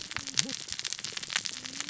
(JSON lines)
{"label": "biophony, cascading saw", "recorder": "SoundTrap 600 or HydroMoth"}